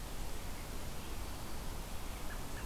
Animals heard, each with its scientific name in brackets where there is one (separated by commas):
American Robin (Turdus migratorius), Red-eyed Vireo (Vireo olivaceus)